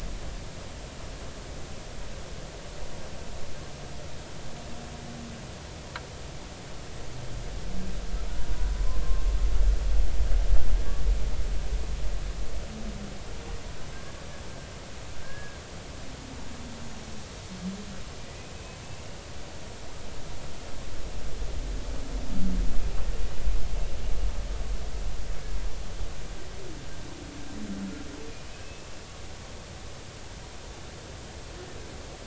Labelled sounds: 8.9	9.2	humpback whale, 0.99 to 1.1 kHz
15.2	15.6	humpback whale, 1.6 to 1.7 kHz
28.5	28.9	humpback whale, 2.5 to 2.7 kHz

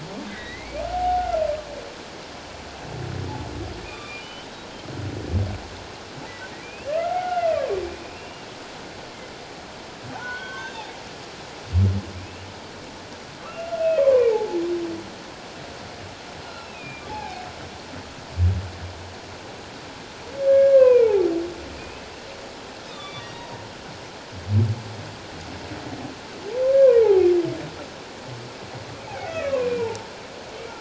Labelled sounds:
0.3	0.8	humpback whale, 1.8 to 2.5 kHz
3.8	4.5	humpback whale, 1.1 to 3.2 kHz
6.6	8.5	humpback whale, 0.78 to 2.9 kHz
10.1	10.9	humpback whale, 0.78 to 3.8 kHz
12.2	12.5	humpback whale, 2.3 to 2.9 kHz
13.4	14.6	humpback whale, 0.78 to 2.8 kHz
16.5	17.5	humpback whale, 0.78 to 2.8 kHz
20.5	22.0	humpback whale, 0.94 to 2.7 kHz
22.9	23.6	humpback whale, 0.91 to 3.8 kHz
27.0	27.3	humpback whale, 0.78 to 1.0 kHz
29.3	30.1	humpback whale, 0.84 to 2.7 kHz

